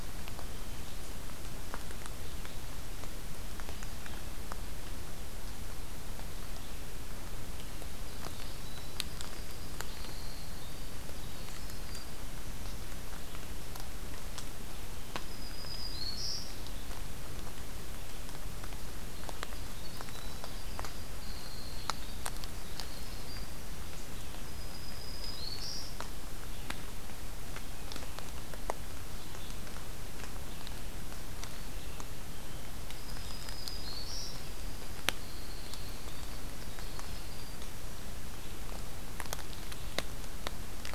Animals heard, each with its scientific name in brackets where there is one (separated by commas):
Black-throated Green Warbler (Setophaga virens), Winter Wren (Troglodytes hiemalis), Red-eyed Vireo (Vireo olivaceus)